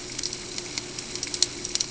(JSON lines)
{"label": "ambient", "recorder": "HydroMoth"}